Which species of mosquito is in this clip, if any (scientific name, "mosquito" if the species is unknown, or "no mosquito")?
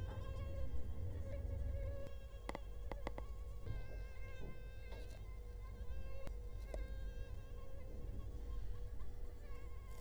Culex quinquefasciatus